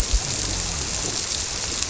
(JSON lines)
{"label": "biophony", "recorder": "SoundTrap 300"}